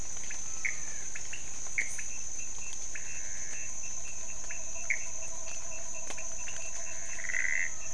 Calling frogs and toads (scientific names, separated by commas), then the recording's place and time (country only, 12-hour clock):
Leptodactylus podicipinus, Pithecopus azureus
Brazil, 12:00am